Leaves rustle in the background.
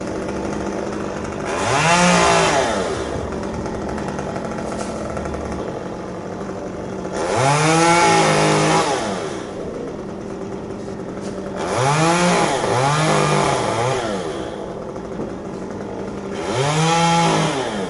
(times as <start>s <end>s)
4.5s 5.7s, 11.1s 11.8s